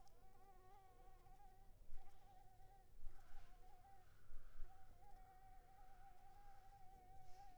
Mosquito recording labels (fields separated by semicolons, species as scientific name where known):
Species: Anopheles arabiensis; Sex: female; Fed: unfed; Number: one; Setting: cup